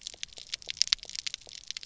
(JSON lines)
{"label": "biophony, pulse", "recorder": "SoundTrap 300"}